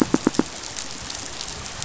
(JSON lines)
{"label": "biophony, pulse", "recorder": "SoundTrap 500"}